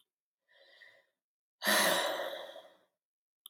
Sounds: Sigh